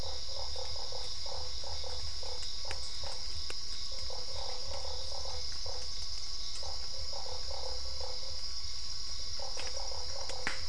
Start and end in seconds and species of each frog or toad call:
0.0	8.3	Boana lundii
0.0	10.1	Dendropsophus cruzi
9.4	10.6	Boana lundii
Cerrado, Brazil, 8pm

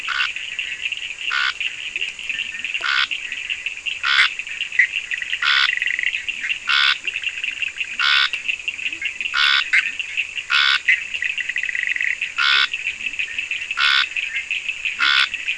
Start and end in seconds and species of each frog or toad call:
0.0	3.6	Leptodactylus latrans
0.0	15.4	Scinax perereca
4.1	6.3	Boana bischoffi
6.1	15.5	Leptodactylus latrans
9.7	12.3	Boana bischoffi
Atlantic Forest, Brazil, 3:30am

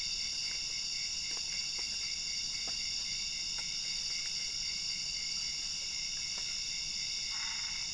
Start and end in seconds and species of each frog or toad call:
7.3	7.9	Boana albopunctata
Cerrado, Brazil, midnight

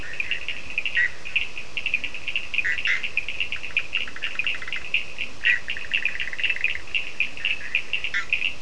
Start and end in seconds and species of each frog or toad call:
0.0	1.3	Boana bischoffi
0.0	5.7	Leptodactylus latrans
0.0	8.6	Sphaenorhynchus surdus
2.5	7.0	Boana bischoffi
7.0	8.6	Leptodactylus latrans
8.0	8.6	Boana bischoffi
Atlantic Forest, Brazil, 4:30am

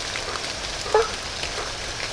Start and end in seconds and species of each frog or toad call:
0.8	1.3	Boana faber
Atlantic Forest, Brazil, 8:30pm

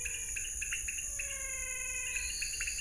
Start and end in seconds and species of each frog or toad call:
0.0	2.8	Leptodactylus podicipinus
0.0	2.8	Physalaemus albonotatus
2.0	2.8	Elachistocleis matogrosso
Cerrado, Brazil, 6:30pm

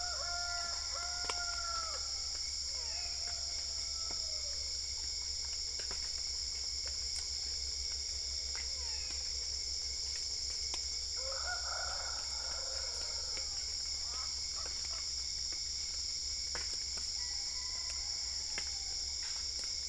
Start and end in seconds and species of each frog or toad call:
2.7	3.4	Physalaemus marmoratus
8.7	9.3	Physalaemus marmoratus
Cerrado, Brazil, ~4am

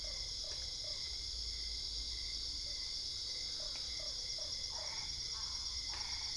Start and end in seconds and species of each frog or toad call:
0.0	1.1	Boana lundii
3.5	4.9	Boana lundii
4.7	6.3	Boana albopunctata
Cerrado, Brazil, 11pm

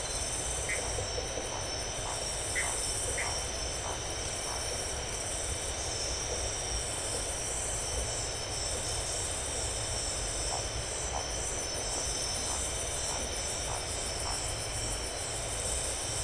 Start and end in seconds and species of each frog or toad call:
0.6	0.9	Dendropsophus elegans
2.4	3.4	Dendropsophus elegans
Atlantic Forest, Brazil, 11pm

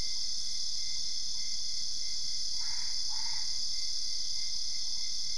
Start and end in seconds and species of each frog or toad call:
2.4	3.9	Boana albopunctata
Cerrado, Brazil, 2:30am

